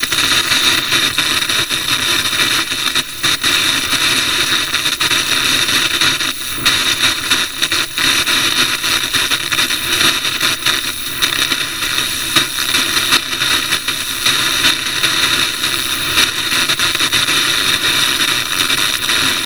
Is it annoying?
yes